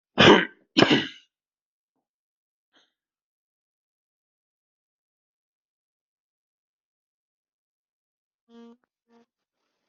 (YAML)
expert_labels:
- quality: poor
  cough_type: wet
  dyspnea: false
  wheezing: false
  stridor: false
  choking: false
  congestion: false
  nothing: true
  diagnosis: lower respiratory tract infection
  severity: mild
age: 42
gender: female
respiratory_condition: false
fever_muscle_pain: true
status: symptomatic